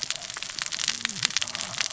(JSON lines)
{"label": "biophony, cascading saw", "recorder": "SoundTrap 600 or HydroMoth"}